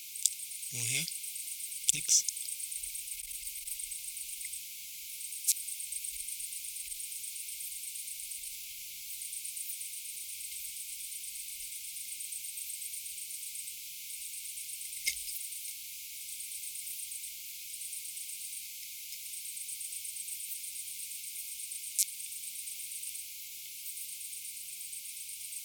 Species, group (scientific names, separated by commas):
Leptophyes albovittata, Orthoptera